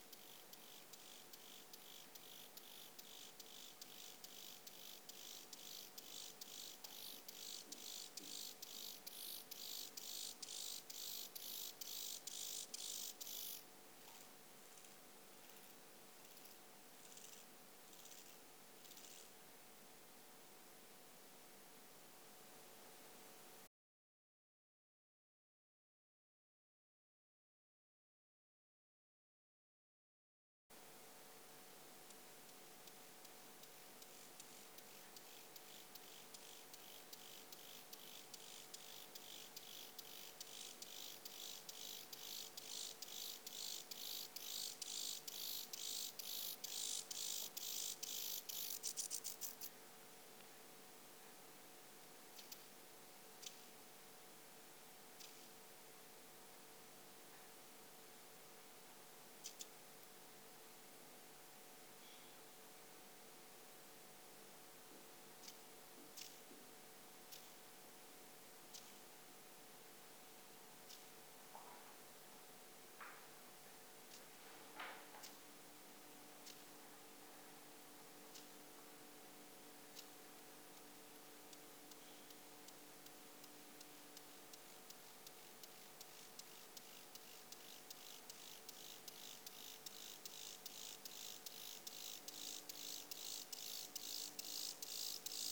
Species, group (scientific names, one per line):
Chorthippus mollis
Orthoptera